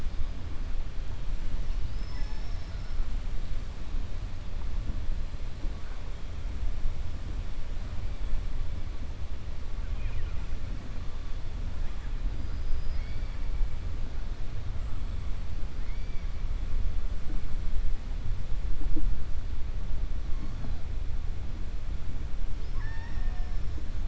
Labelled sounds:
1.8	3.0	killer whale, 4.1 to 6.1 kHz
9.9	10.4	killer whale, 0.96 to 3.2 kHz
22.5	23.8	killer whale, 0.73 to 5.7 kHz

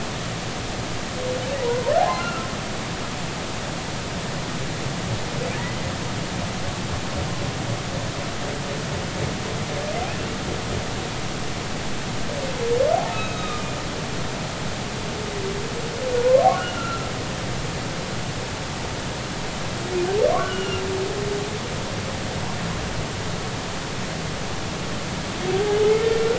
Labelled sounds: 1.6	2.5	humpback whale, 0.80 to 4.2 kHz
12.9	13.6	humpback whale, 0.80 to 3.8 kHz
16.2	17.1	humpback whale, 0.93 to 1.5 kHz
20.4	20.8	humpback whale, 1.3 to 3.0 kHz
25.5	25.8	humpback whale, 0.80 to 0.86 kHz

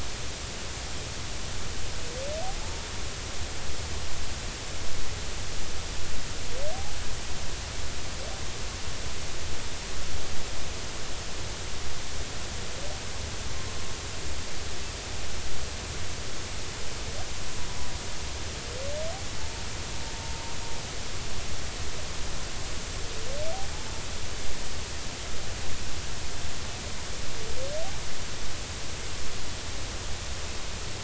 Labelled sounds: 19.4	19.6	humpback whale, 0.83 to 0.96 kHz

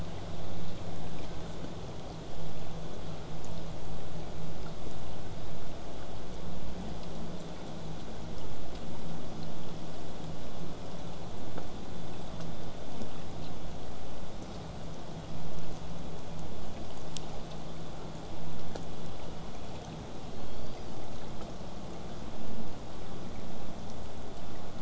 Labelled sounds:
20.2	21.4	killer whale, southern resident, call S01, 1.9 to 5.9 kHz

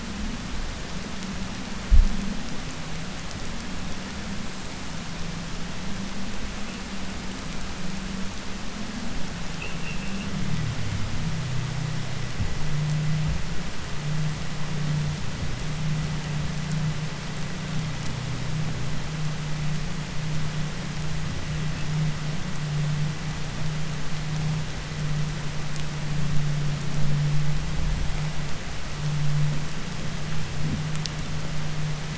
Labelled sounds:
9.5	10.3	vessel noise, 2.5 to 3.2 kHz

